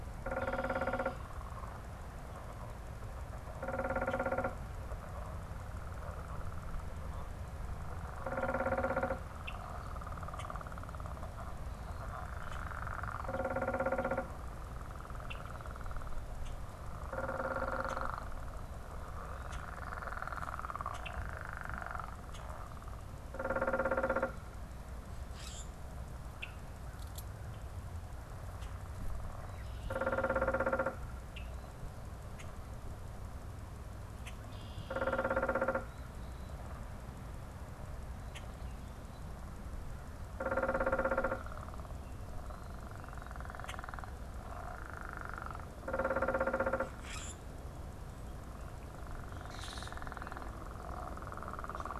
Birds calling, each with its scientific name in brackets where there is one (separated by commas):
Common Grackle (Quiscalus quiscula), Red-winged Blackbird (Agelaius phoeniceus), unidentified bird